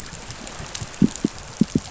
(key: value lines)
label: biophony
recorder: SoundTrap 500